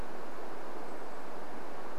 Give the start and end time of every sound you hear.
[0, 2] Brown Creeper call

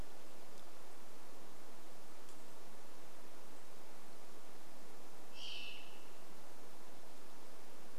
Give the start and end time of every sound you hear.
[4, 6] Varied Thrush song

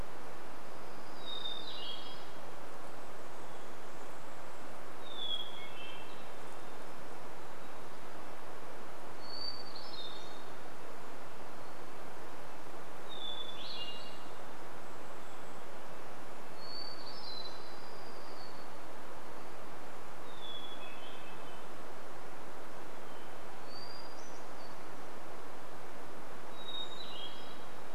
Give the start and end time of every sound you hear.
[0, 4] warbler song
[0, 18] Hermit Thrush song
[2, 6] Golden-crowned Kinglet call
[14, 16] Golden-crowned Kinglet call
[16, 20] warbler song
[20, 28] Hermit Thrush song
[26, 28] Golden-crowned Kinglet call

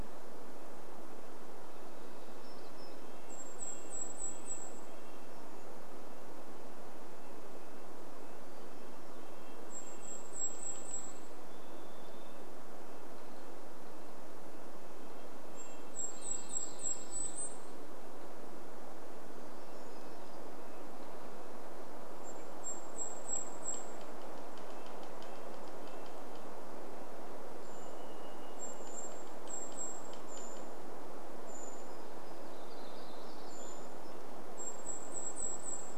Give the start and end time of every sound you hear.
[0, 22] Red-breasted Nuthatch song
[2, 4] warbler song
[2, 6] Golden-crowned Kinglet song
[8, 12] Golden-crowned Kinglet song
[10, 14] Varied Thrush song
[14, 18] Golden-crowned Kinglet song
[16, 18] warbler song
[18, 22] unidentified sound
[22, 24] Golden-crowned Kinglet song
[22, 32] tree creak
[24, 28] Red-breasted Nuthatch song
[26, 30] Varied Thrush song
[26, 34] Golden-crowned Kinglet call
[28, 30] Golden-crowned Kinglet song
[32, 34] warbler song
[34, 36] Golden-crowned Kinglet song
[34, 36] Red-breasted Nuthatch song

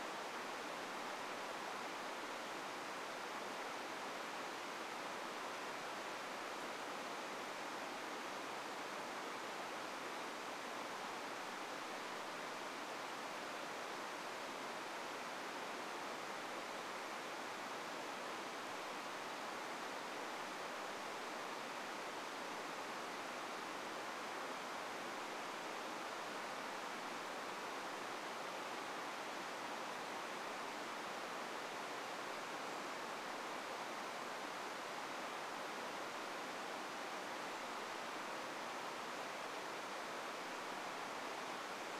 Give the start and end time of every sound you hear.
[32, 34] Brown Creeper call

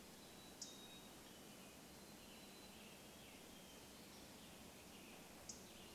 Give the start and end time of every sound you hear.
[0, 2] unidentified bird chip note
[0, 4] Mountain Chickadee song
[0, 6] Western Tanager song
[4, 6] unidentified bird chip note

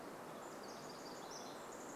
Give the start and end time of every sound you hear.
[0, 2] Pacific Wren song

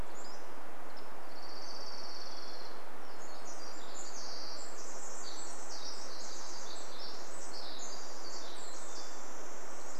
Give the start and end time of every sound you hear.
[0, 2] Pacific-slope Flycatcher song
[0, 4] Orange-crowned Warbler song
[2, 4] Hermit Thrush song
[2, 10] Pacific Wren song
[8, 10] Hermit Thrush song
[8, 10] Pacific-slope Flycatcher call

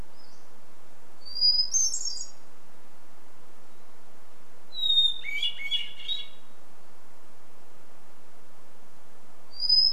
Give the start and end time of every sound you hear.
[0, 2] Pacific-slope Flycatcher call
[0, 10] Hermit Thrush song

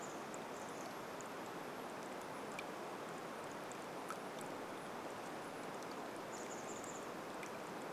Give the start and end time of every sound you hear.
[0, 8] Chestnut-backed Chickadee call
[0, 8] rain

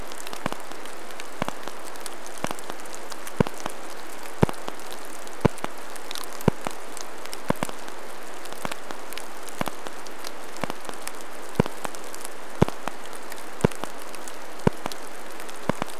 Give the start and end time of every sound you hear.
[0, 16] rain

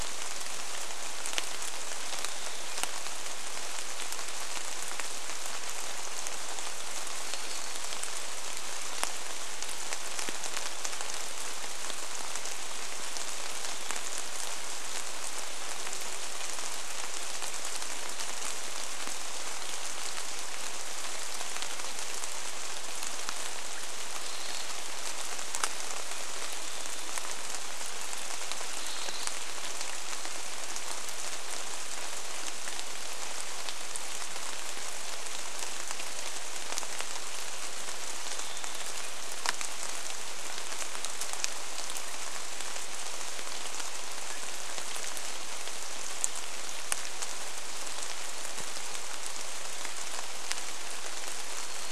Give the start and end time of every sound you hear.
[0, 52] rain
[2, 4] Varied Thrush song
[6, 8] Varied Thrush song
[24, 26] Swainson's Thrush call
[28, 30] Swainson's Thrush call
[38, 40] Varied Thrush song
[50, 52] Varied Thrush song

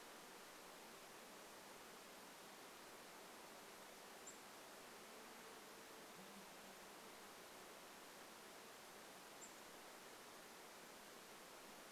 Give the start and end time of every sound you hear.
[4, 6] unidentified bird chip note
[4, 8] insect buzz
[8, 10] unidentified bird chip note

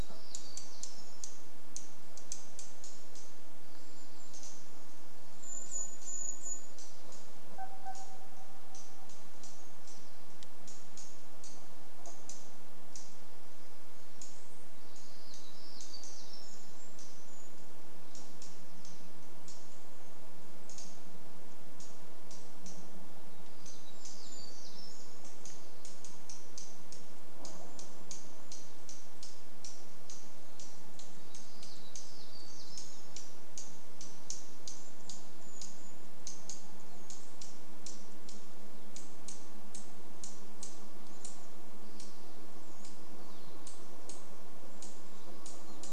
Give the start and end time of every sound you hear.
[0, 2] warbler song
[0, 46] unidentified bird chip note
[4, 8] Brown Creeper call
[6, 10] truck beep
[14, 18] warbler song
[24, 26] warbler song
[30, 34] warbler song
[34, 36] Brown Creeper call
[34, 42] vehicle engine
[42, 44] Evening Grosbeak call
[44, 46] vehicle engine

